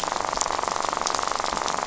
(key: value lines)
label: biophony, rattle
recorder: SoundTrap 500